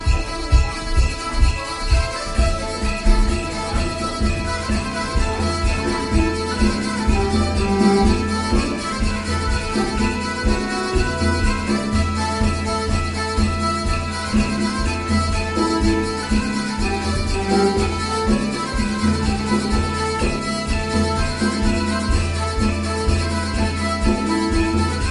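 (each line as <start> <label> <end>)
0.0 Traditional northern historical music. 25.1
2.4 Drums are playing in the background. 25.1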